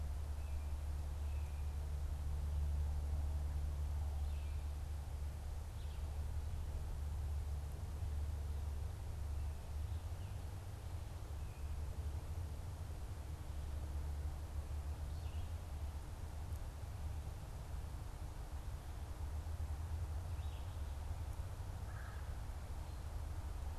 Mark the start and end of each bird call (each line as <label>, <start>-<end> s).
Red-eyed Vireo (Vireo olivaceus), 20.2-20.6 s
Red-bellied Woodpecker (Melanerpes carolinus), 21.8-22.4 s